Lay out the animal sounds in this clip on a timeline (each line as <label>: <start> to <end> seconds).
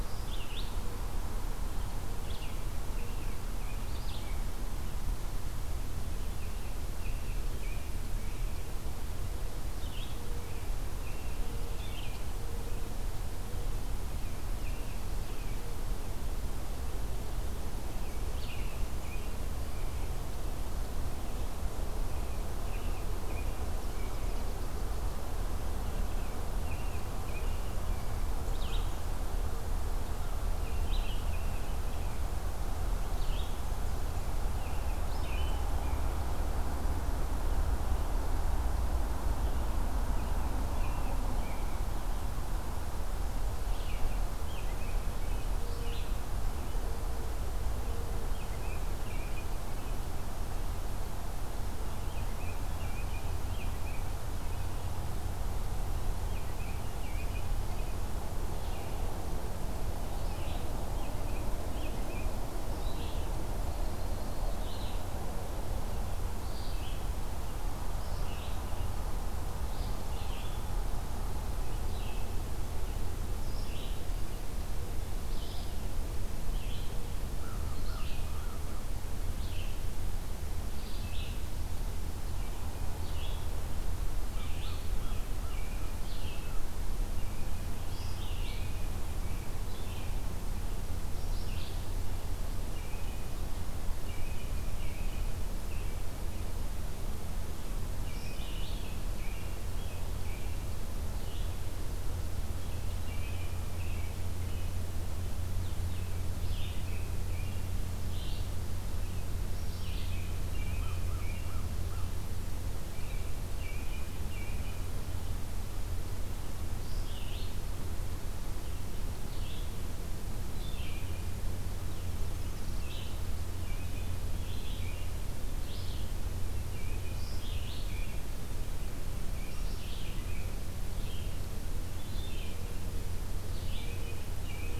Red-eyed Vireo (Vireo olivaceus): 0.0 to 4.4 seconds
American Robin (Turdus migratorius): 2.5 to 4.4 seconds
American Robin (Turdus migratorius): 6.1 to 8.7 seconds
Red-eyed Vireo (Vireo olivaceus): 9.7 to 12.2 seconds
American Robin (Turdus migratorius): 10.3 to 12.0 seconds
American Robin (Turdus migratorius): 14.1 to 16.2 seconds
American Robin (Turdus migratorius): 17.8 to 20.1 seconds
Red-eyed Vireo (Vireo olivaceus): 18.2 to 18.8 seconds
American Robin (Turdus migratorius): 21.9 to 24.4 seconds
American Robin (Turdus migratorius): 25.8 to 28.2 seconds
Red-eyed Vireo (Vireo olivaceus): 28.4 to 35.7 seconds
American Robin (Turdus migratorius): 30.5 to 32.2 seconds
American Robin (Turdus migratorius): 34.5 to 36.2 seconds
American Robin (Turdus migratorius): 39.4 to 41.9 seconds
American Robin (Turdus migratorius): 43.6 to 45.7 seconds
Red-eyed Vireo (Vireo olivaceus): 43.6 to 46.1 seconds
American Robin (Turdus migratorius): 47.8 to 50.1 seconds
American Robin (Turdus migratorius): 51.6 to 54.0 seconds
American Robin (Turdus migratorius): 55.9 to 58.0 seconds
Red-eyed Vireo (Vireo olivaceus): 58.6 to 91.8 seconds
American Robin (Turdus migratorius): 60.8 to 62.4 seconds
American Crow (Corvus brachyrhynchos): 77.3 to 78.9 seconds
American Crow (Corvus brachyrhynchos): 84.3 to 86.4 seconds
American Robin (Turdus migratorius): 84.4 to 85.9 seconds
American Robin (Turdus migratorius): 87.1 to 90.4 seconds
American Robin (Turdus migratorius): 92.7 to 95.9 seconds
American Robin (Turdus migratorius): 98.0 to 100.6 seconds
Red-eyed Vireo (Vireo olivaceus): 98.2 to 101.6 seconds
American Robin (Turdus migratorius): 102.6 to 104.7 seconds
American Robin (Turdus migratorius): 105.9 to 107.7 seconds
Red-eyed Vireo (Vireo olivaceus): 106.2 to 110.2 seconds
American Robin (Turdus migratorius): 109.8 to 111.6 seconds
American Crow (Corvus brachyrhynchos): 110.6 to 112.0 seconds
American Robin (Turdus migratorius): 112.8 to 115.0 seconds
Red-eyed Vireo (Vireo olivaceus): 116.7 to 134.8 seconds
Nashville Warbler (Leiothlypis ruficapilla): 122.1 to 123.3 seconds
American Robin (Turdus migratorius): 123.5 to 125.2 seconds
American Robin (Turdus migratorius): 126.7 to 128.3 seconds
American Robin (Turdus migratorius): 129.3 to 130.6 seconds
American Robin (Turdus migratorius): 133.7 to 134.8 seconds